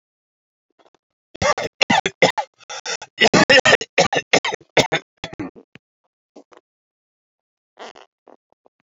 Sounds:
Cough